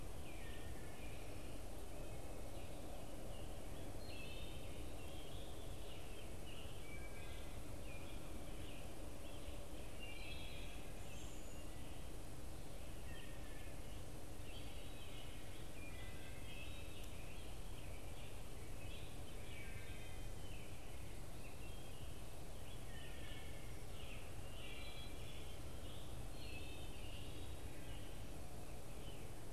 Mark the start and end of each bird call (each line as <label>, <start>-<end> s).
Scarlet Tanager (Piranga olivacea), 0.0-0.7 s
American Robin (Turdus migratorius), 0.0-29.5 s
Wood Thrush (Hylocichla mustelina), 0.0-29.5 s